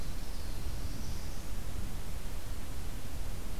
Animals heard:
Black-throated Blue Warbler (Setophaga caerulescens)

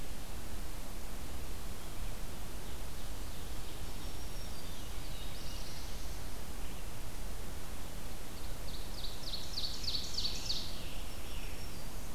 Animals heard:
Ovenbird (Seiurus aurocapilla), Scarlet Tanager (Piranga olivacea), Black-throated Blue Warbler (Setophaga caerulescens), Black-throated Green Warbler (Setophaga virens)

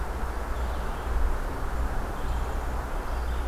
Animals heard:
Red-eyed Vireo (Vireo olivaceus), Black-capped Chickadee (Poecile atricapillus)

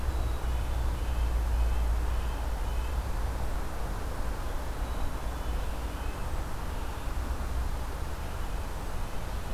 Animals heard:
Cedar Waxwing (Bombycilla cedrorum), Red-breasted Nuthatch (Sitta canadensis)

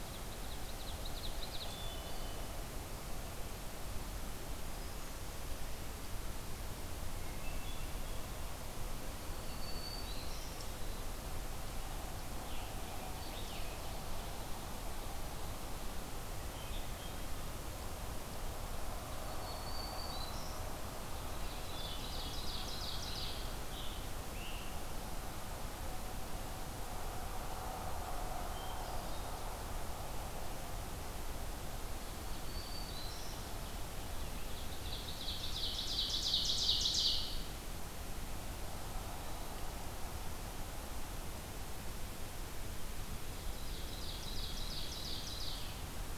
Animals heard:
Hermit Thrush (Catharus guttatus), Wood Thrush (Hylocichla mustelina), Ovenbird (Seiurus aurocapilla), Scarlet Tanager (Piranga olivacea), Black-throated Green Warbler (Setophaga virens)

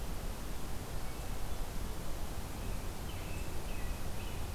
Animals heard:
Wood Thrush (Hylocichla mustelina), American Robin (Turdus migratorius)

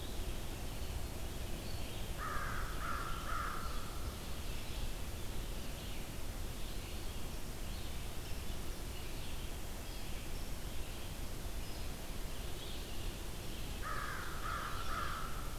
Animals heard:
Red-eyed Vireo (Vireo olivaceus), American Crow (Corvus brachyrhynchos)

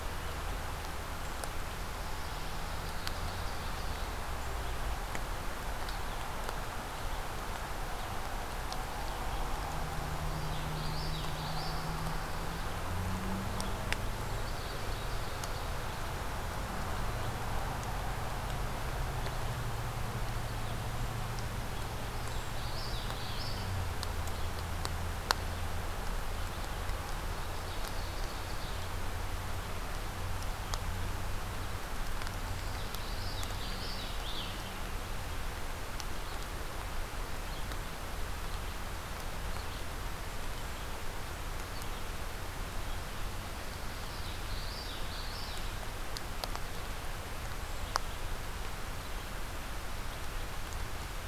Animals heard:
Ovenbird (Seiurus aurocapilla), Common Yellowthroat (Geothlypis trichas)

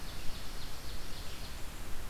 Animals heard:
Ovenbird (Seiurus aurocapilla), Red-eyed Vireo (Vireo olivaceus)

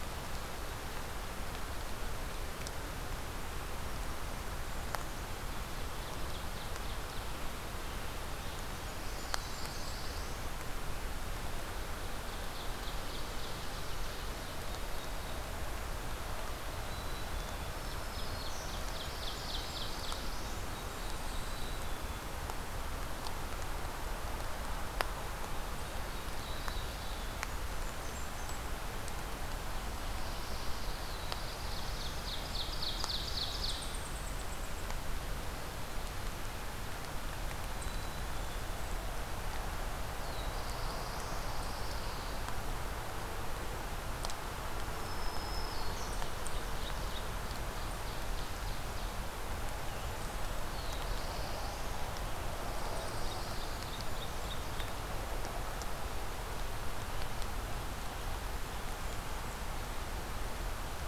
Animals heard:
Black-throated Green Warbler (Setophaga virens), Black-throated Blue Warbler (Setophaga caerulescens), Ovenbird (Seiurus aurocapilla), Eastern Chipmunk (Tamias striatus), Black-capped Chickadee (Poecile atricapillus), Blackburnian Warbler (Setophaga fusca), Pine Warbler (Setophaga pinus)

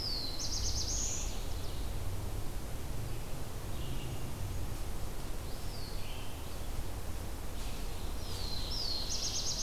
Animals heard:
Eastern Wood-Pewee (Contopus virens), Ovenbird (Seiurus aurocapilla), Black-throated Blue Warbler (Setophaga caerulescens), Red-eyed Vireo (Vireo olivaceus)

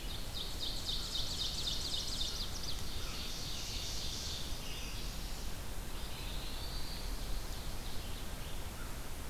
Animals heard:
Ovenbird (Seiurus aurocapilla), Red-eyed Vireo (Vireo olivaceus), Chestnut-sided Warbler (Setophaga pensylvanica), Eastern Wood-Pewee (Contopus virens)

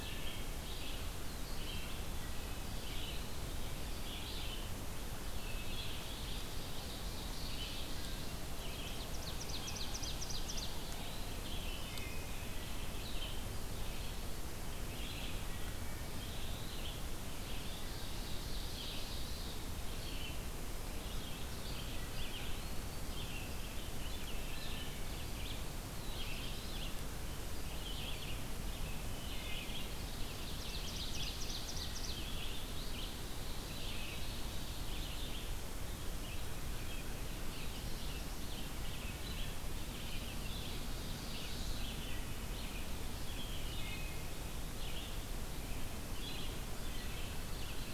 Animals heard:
Ovenbird (Seiurus aurocapilla), Eastern Wood-Pewee (Contopus virens), Black-throated Blue Warbler (Setophaga caerulescens), Red-eyed Vireo (Vireo olivaceus), Wood Thrush (Hylocichla mustelina)

